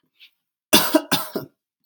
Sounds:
Cough